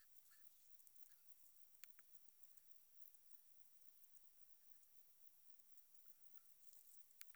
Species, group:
Metrioptera saussuriana
Orthoptera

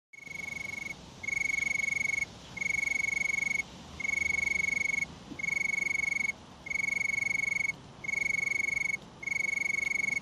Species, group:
Oecanthus pellucens
Orthoptera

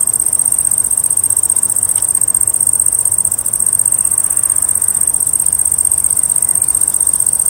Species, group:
Pseudochorthippus parallelus
Orthoptera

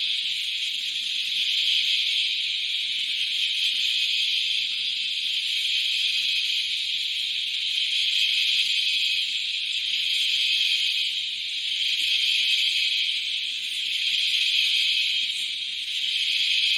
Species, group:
Aleeta curvicosta
Cicadidae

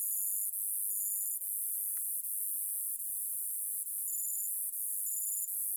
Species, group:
Neoconocephalus triops
Orthoptera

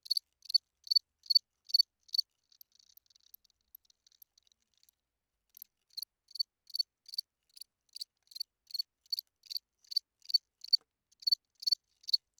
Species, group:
Gryllus bimaculatus
Orthoptera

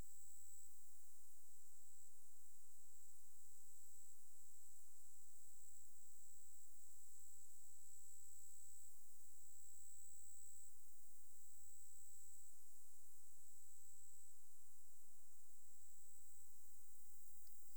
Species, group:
Pteronemobius heydenii
Orthoptera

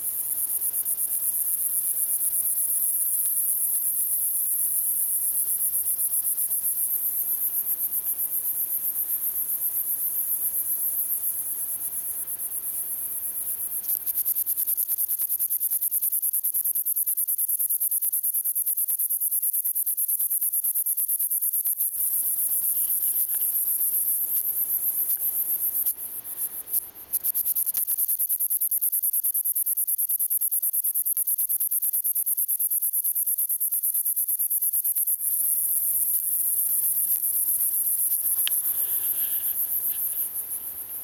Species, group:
Orchelimum gladiator
Orthoptera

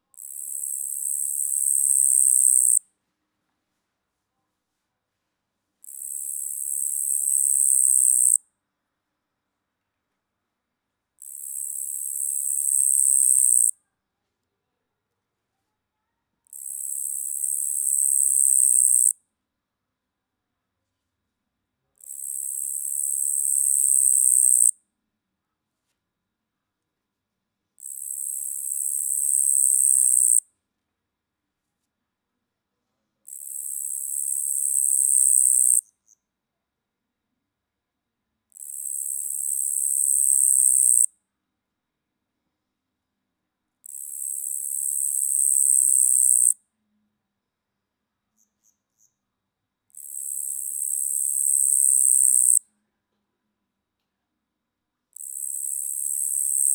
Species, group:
Tettigonia caudata
Orthoptera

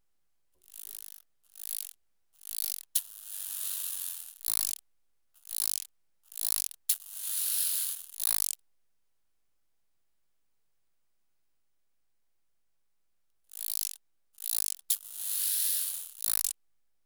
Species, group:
Arcyptera fusca
Orthoptera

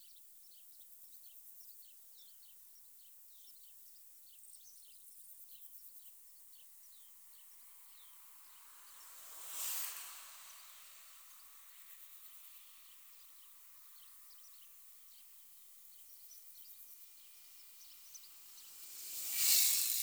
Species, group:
Metaplastes ornatus
Orthoptera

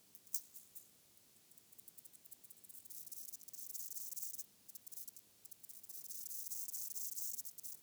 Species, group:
Gomphocerippus rufus
Orthoptera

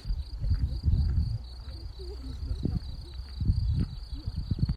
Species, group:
Gryllus campestris
Orthoptera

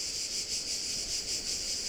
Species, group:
Cicada orni
Cicadidae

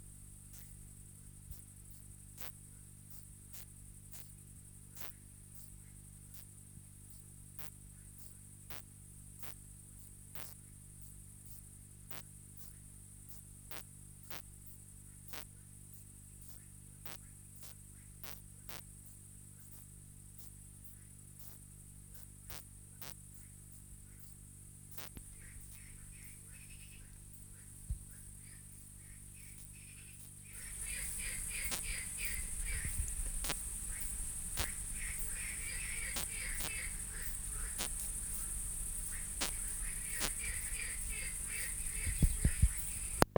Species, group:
Poecilimon veluchianus
Orthoptera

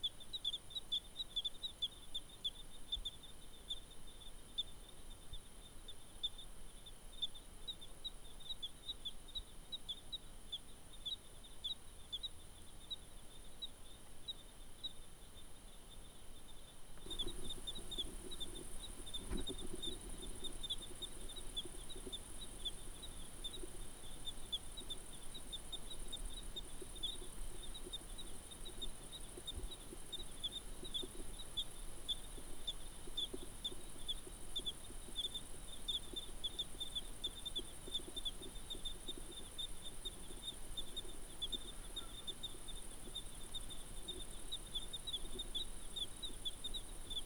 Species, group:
Eugryllodes escalerae
Orthoptera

